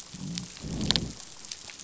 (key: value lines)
label: biophony, growl
recorder: SoundTrap 500